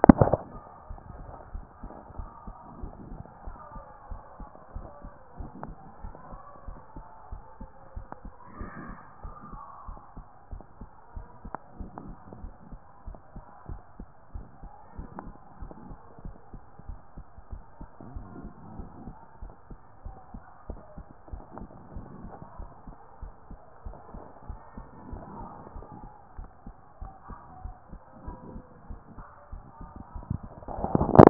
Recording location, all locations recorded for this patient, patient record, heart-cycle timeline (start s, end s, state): pulmonary valve (PV)
aortic valve (AV)+aortic valve (AV)+pulmonary valve (PV)+tricuspid valve (TV)+mitral valve (MV)+mitral valve (MV)
#Age: nan
#Sex: Female
#Height: nan
#Weight: nan
#Pregnancy status: True
#Murmur: Absent
#Murmur locations: nan
#Most audible location: nan
#Systolic murmur timing: nan
#Systolic murmur shape: nan
#Systolic murmur grading: nan
#Systolic murmur pitch: nan
#Systolic murmur quality: nan
#Diastolic murmur timing: nan
#Diastolic murmur shape: nan
#Diastolic murmur grading: nan
#Diastolic murmur pitch: nan
#Diastolic murmur quality: nan
#Outcome: Abnormal
#Campaign: 2014 screening campaign
0.00	0.88	unannotated
0.88	1.00	S1
1.00	1.14	systole
1.14	1.26	S2
1.26	1.52	diastole
1.52	1.64	S1
1.64	1.82	systole
1.82	1.90	S2
1.90	2.18	diastole
2.18	2.30	S1
2.30	2.46	systole
2.46	2.54	S2
2.54	2.80	diastole
2.80	2.92	S1
2.92	3.10	systole
3.10	3.20	S2
3.20	3.46	diastole
3.46	3.56	S1
3.56	3.74	systole
3.74	3.84	S2
3.84	4.10	diastole
4.10	4.22	S1
4.22	4.38	systole
4.38	4.48	S2
4.48	4.74	diastole
4.74	4.88	S1
4.88	5.02	systole
5.02	5.12	S2
5.12	5.38	diastole
5.38	5.50	S1
5.50	5.66	systole
5.66	5.76	S2
5.76	6.02	diastole
6.02	6.14	S1
6.14	6.30	systole
6.30	6.40	S2
6.40	6.66	diastole
6.66	6.78	S1
6.78	6.96	systole
6.96	7.04	S2
7.04	7.30	diastole
7.30	7.42	S1
7.42	7.60	systole
7.60	7.70	S2
7.70	7.96	diastole
7.96	8.06	S1
8.06	8.24	systole
8.24	8.32	S2
8.32	8.58	diastole
8.58	8.70	S1
8.70	8.86	systole
8.86	8.96	S2
8.96	9.22	diastole
9.22	9.34	S1
9.34	9.50	systole
9.50	9.60	S2
9.60	9.88	diastole
9.88	9.98	S1
9.98	10.16	systole
10.16	10.26	S2
10.26	10.52	diastole
10.52	10.62	S1
10.62	10.80	systole
10.80	10.88	S2
10.88	11.14	diastole
11.14	11.26	S1
11.26	11.44	systole
11.44	11.52	S2
11.52	11.78	diastole
11.78	11.90	S1
11.90	12.06	systole
12.06	12.16	S2
12.16	12.40	diastole
12.40	12.52	S1
12.52	12.70	systole
12.70	12.80	S2
12.80	13.06	diastole
13.06	13.18	S1
13.18	13.34	systole
13.34	13.44	S2
13.44	13.68	diastole
13.68	13.80	S1
13.80	13.98	systole
13.98	14.08	S2
14.08	14.34	diastole
14.34	14.46	S1
14.46	14.62	systole
14.62	14.70	S2
14.70	14.98	diastole
14.98	15.08	S1
15.08	15.24	systole
15.24	15.34	S2
15.34	15.60	diastole
15.60	15.72	S1
15.72	15.88	systole
15.88	15.98	S2
15.98	16.24	diastole
16.24	16.36	S1
16.36	16.52	systole
16.52	16.62	S2
16.62	16.88	diastole
16.88	17.00	S1
17.00	17.16	systole
17.16	17.26	S2
17.26	17.52	diastole
17.52	17.62	S1
17.62	17.80	systole
17.80	17.88	S2
17.88	18.14	diastole
18.14	18.26	S1
18.26	18.42	systole
18.42	18.50	S2
18.50	18.76	diastole
18.76	18.88	S1
18.88	19.04	systole
19.04	19.14	S2
19.14	19.42	diastole
19.42	19.52	S1
19.52	19.70	systole
19.70	19.78	S2
19.78	20.04	diastole
20.04	20.16	S1
20.16	20.32	systole
20.32	20.42	S2
20.42	20.68	diastole
20.68	20.80	S1
20.80	20.96	systole
20.96	21.06	S2
21.06	21.32	diastole
21.32	21.44	S1
21.44	21.58	systole
21.58	21.68	S2
21.68	21.94	diastole
21.94	22.06	S1
22.06	22.22	systole
22.22	22.32	S2
22.32	22.58	diastole
22.58	22.70	S1
22.70	22.86	systole
22.86	22.96	S2
22.96	23.22	diastole
23.22	23.34	S1
23.34	23.50	systole
23.50	23.60	S2
23.60	23.84	diastole
23.84	23.96	S1
23.96	24.14	systole
24.14	24.24	S2
24.24	24.48	diastole
24.48	24.60	S1
24.60	24.76	systole
24.76	24.86	S2
24.86	25.10	diastole
25.10	25.24	S1
25.24	25.38	systole
25.38	25.48	S2
25.48	25.74	diastole
25.74	25.86	S1
25.86	26.00	systole
26.00	26.10	S2
26.10	26.36	diastole
26.36	26.48	S1
26.48	26.66	systole
26.66	26.76	S2
26.76	27.00	diastole
27.00	27.12	S1
27.12	27.28	systole
27.28	27.38	S2
27.38	27.64	diastole
27.64	27.76	S1
27.76	27.92	systole
27.92	28.00	S2
28.00	28.26	diastole
28.26	28.38	S1
28.38	28.52	systole
28.52	28.64	S2
28.64	28.88	diastole
28.88	29.00	S1
29.00	29.16	systole
29.16	29.26	S2
29.26	29.52	diastole
29.52	29.64	S1
29.64	29.80	systole
29.80	29.90	S2
29.90	30.14	diastole
30.14	31.30	unannotated